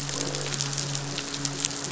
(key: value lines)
label: biophony, midshipman
recorder: SoundTrap 500

label: biophony, croak
recorder: SoundTrap 500